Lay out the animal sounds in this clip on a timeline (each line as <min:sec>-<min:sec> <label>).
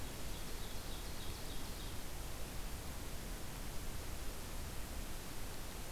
0:00.0-0:02.0 Ovenbird (Seiurus aurocapilla)